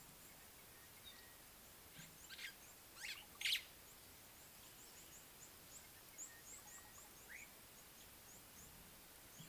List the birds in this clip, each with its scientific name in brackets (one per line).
Sulphur-breasted Bushshrike (Telophorus sulfureopectus)
Red-cheeked Cordonbleu (Uraeginthus bengalus)
White-browed Sparrow-Weaver (Plocepasser mahali)